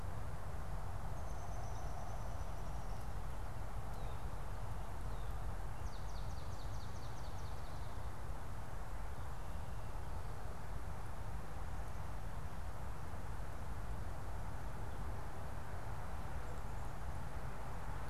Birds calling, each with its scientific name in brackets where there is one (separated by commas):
Swamp Sparrow (Melospiza georgiana), Downy Woodpecker (Dryobates pubescens)